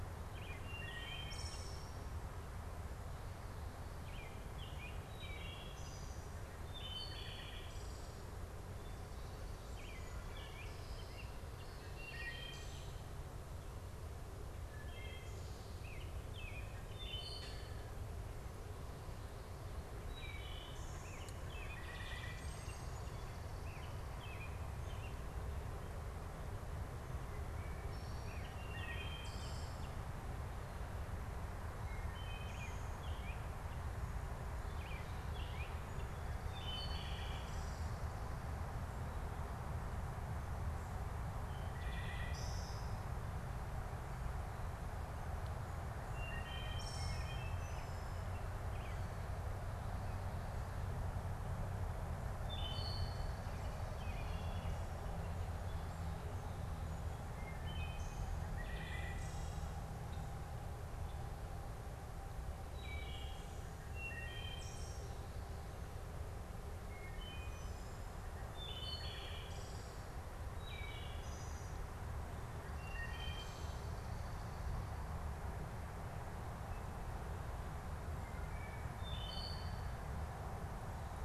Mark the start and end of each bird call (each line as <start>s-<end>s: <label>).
0.0s-5.6s: American Robin (Turdus migratorius)
0.6s-2.1s: Wood Thrush (Hylocichla mustelina)
4.9s-8.3s: Wood Thrush (Hylocichla mustelina)
9.7s-11.7s: American Robin (Turdus migratorius)
11.4s-13.1s: Wood Thrush (Hylocichla mustelina)
14.5s-18.0s: Wood Thrush (Hylocichla mustelina)
15.7s-17.6s: American Robin (Turdus migratorius)
19.8s-23.2s: Wood Thrush (Hylocichla mustelina)
21.0s-25.2s: American Robin (Turdus migratorius)
27.4s-30.0s: Wood Thrush (Hylocichla mustelina)
28.1s-30.0s: American Robin (Turdus migratorius)
31.5s-38.1s: Wood Thrush (Hylocichla mustelina)
32.4s-35.9s: American Robin (Turdus migratorius)
41.3s-43.2s: Wood Thrush (Hylocichla mustelina)
46.1s-48.0s: Wood Thrush (Hylocichla mustelina)
47.4s-49.4s: American Robin (Turdus migratorius)
52.2s-53.6s: Wood Thrush (Hylocichla mustelina)
57.2s-59.8s: Wood Thrush (Hylocichla mustelina)
62.6s-74.9s: Wood Thrush (Hylocichla mustelina)
72.4s-74.7s: unidentified bird
78.1s-80.0s: Wood Thrush (Hylocichla mustelina)